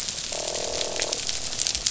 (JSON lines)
{"label": "biophony, croak", "recorder": "SoundTrap 500"}